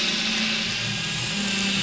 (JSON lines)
{"label": "anthrophony, boat engine", "recorder": "SoundTrap 500"}